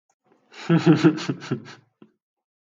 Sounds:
Laughter